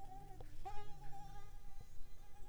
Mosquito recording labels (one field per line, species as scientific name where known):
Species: Mansonia africanus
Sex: female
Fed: unfed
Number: one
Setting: cup